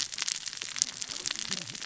{"label": "biophony, cascading saw", "recorder": "SoundTrap 600 or HydroMoth"}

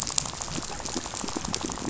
{"label": "biophony, rattle", "recorder": "SoundTrap 500"}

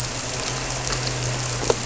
{"label": "anthrophony, boat engine", "recorder": "SoundTrap 300"}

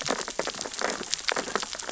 {"label": "biophony, sea urchins (Echinidae)", "recorder": "SoundTrap 600 or HydroMoth"}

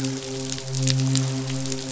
{"label": "biophony, midshipman", "recorder": "SoundTrap 500"}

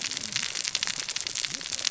{"label": "biophony, cascading saw", "recorder": "SoundTrap 600 or HydroMoth"}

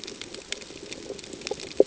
{"label": "ambient", "recorder": "HydroMoth"}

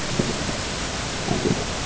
{"label": "ambient", "recorder": "HydroMoth"}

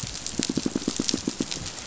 {"label": "biophony, pulse", "recorder": "SoundTrap 500"}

